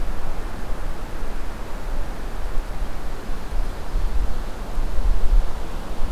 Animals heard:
forest ambience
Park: Acadia National Park